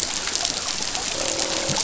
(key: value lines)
label: biophony, croak
recorder: SoundTrap 500